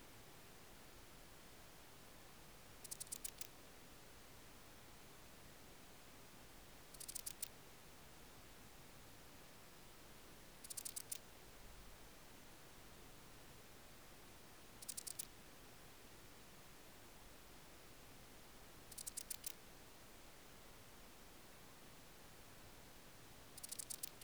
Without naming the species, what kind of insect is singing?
orthopteran